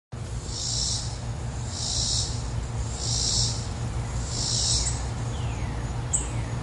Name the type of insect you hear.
cicada